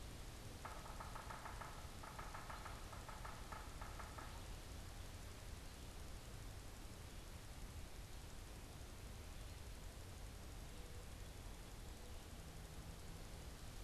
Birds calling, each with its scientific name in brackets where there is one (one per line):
Yellow-bellied Sapsucker (Sphyrapicus varius)